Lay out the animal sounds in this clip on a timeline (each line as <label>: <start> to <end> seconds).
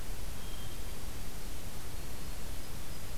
Hermit Thrush (Catharus guttatus): 0.3 to 1.3 seconds
Hermit Thrush (Catharus guttatus): 1.9 to 3.2 seconds